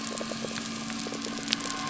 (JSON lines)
{"label": "biophony", "recorder": "SoundTrap 300"}